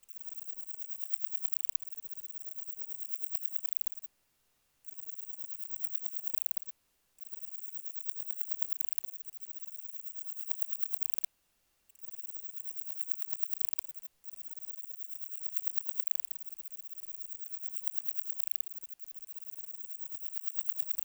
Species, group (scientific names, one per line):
Parnassiana tymphrestos
Orthoptera